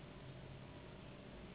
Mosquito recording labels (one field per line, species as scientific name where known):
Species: Anopheles gambiae s.s.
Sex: female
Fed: unfed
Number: one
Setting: insect culture